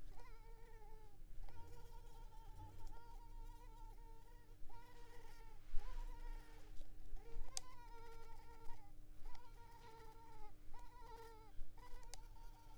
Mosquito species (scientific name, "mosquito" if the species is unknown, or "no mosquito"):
Culex pipiens complex